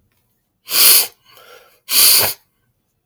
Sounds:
Sniff